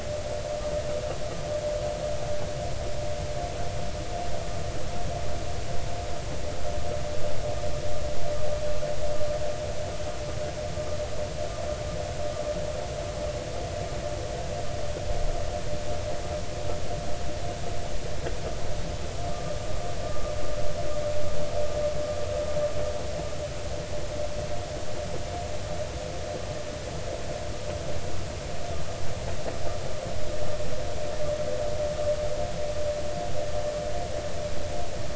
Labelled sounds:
19.3	20.3	vessel noise, 1.1 to 1.3 kHz

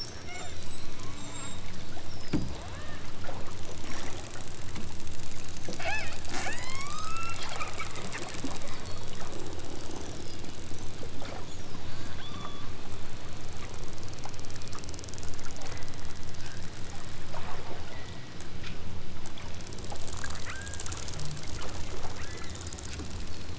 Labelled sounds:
0.2	0.7	killer whale, southern Alaska resident, 0.78 to 4.8 kHz
2.7	3.1	killer whale, southern Alaska resident, 0.55 to 4.1 kHz
5.7	7.5	killer whale, southern Alaska resident, 0.37 to 8.0 kHz
12.0	12.8	killer whale, southern Alaska resident, 0.60 to 5.3 kHz
15.8	16.3	killer whale, southern Alaska resident, 1.4 to 3.9 kHz
17.8	18.4	killer whale, southern Alaska resident, 1.5 to 4.2 kHz
20.5	20.9	killer whale, southern Alaska resident, 0.69 to 2.6 kHz
22.1	22.6	killer whale, southern Alaska resident, 0.88 to 2.8 kHz

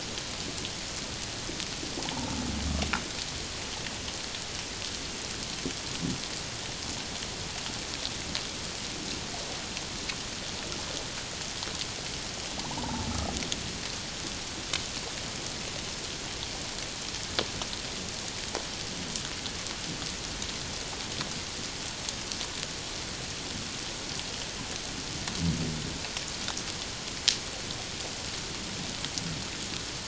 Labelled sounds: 2.1	2.4	humpback whale, 0.78 to 1.0 kHz
12.6	13.1	humpback whale, 0.81 to 1.1 kHz

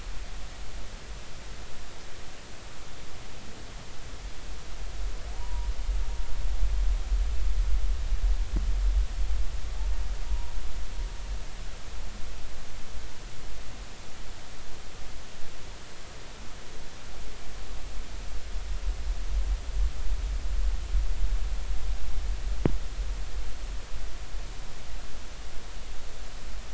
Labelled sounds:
5.4	5.7	humpback whale, 0.90 to 1.0 kHz
10.3	10.5	humpback whale, 0.90 to 1.0 kHz

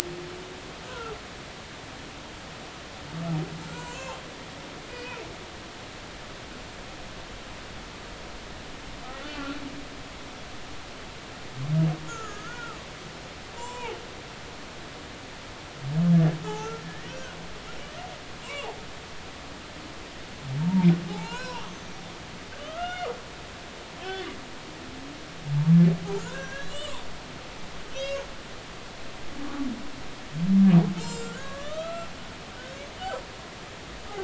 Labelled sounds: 0.9	1.1	humpback whale, 1.2 to 1.6 kHz
3.7	4.2	humpback whale, 0.80 to 7.5 kHz
4.9	5.2	humpback whale, 2.3 to 2.7 kHz
9.2	9.6	humpback whale, 1.3 to 1.5 kHz
12.1	12.8	humpback whale, 1.2 to 1.8 kHz
13.5	14.0	humpback whale, 0.80 to 7.4 kHz
16.4	17.4	humpback whale, 1.2 to 2.0 kHz
18.4	18.7	humpback whale, 0.93 to 2.9 kHz
20.6	21.6	humpback whale, 0.80 to 1.6 kHz
22.6	23.1	humpback whale, 1.1 to 3.0 kHz
24.0	24.3	humpback whale, 2.9 to 3.6 kHz
26.2	27.0	humpback whale, 0.90 to 7.9 kHz
27.9	28.3	humpback whale, 2.6 to 6.7 kHz
31.0	32.1	humpback whale, 1.0 to 7.6 kHz

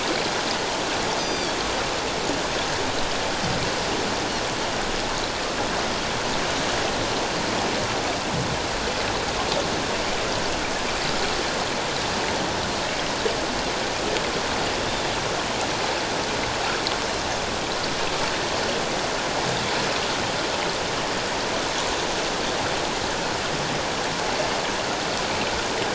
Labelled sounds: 1.2	1.6	Pacific white-sided dolphin, 3.3 to 6.2 kHz

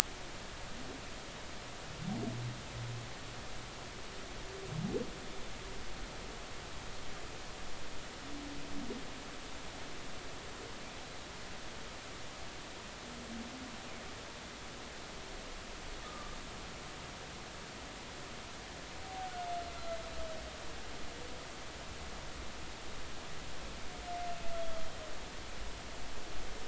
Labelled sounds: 16.0	16.4	humpback whale, 1.1 to 1.3 kHz

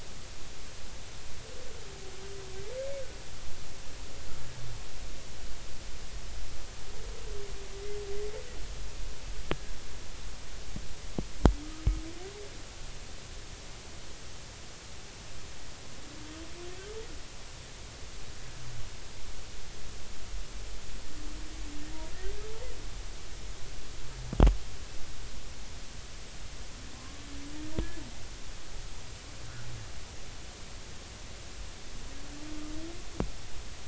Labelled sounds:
9.5	9.8	humpback whale, 1.6 to 1.7 kHz

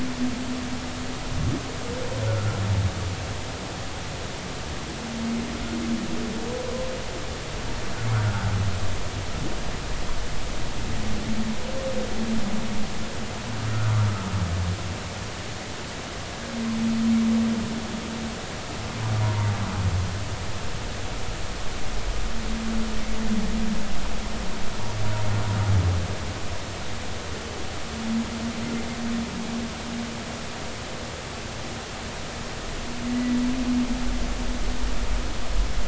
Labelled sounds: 2.2	2.6	humpback whale, 1.3 to 1.5 kHz
8.2	8.5	humpback whale, 1.2 to 1.6 kHz
19.2	19.5	humpback whale, 0.90 to 1.2 kHz
33.1	33.4	humpback whale, 1.9 to 2.0 kHz

